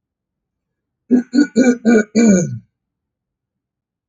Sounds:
Throat clearing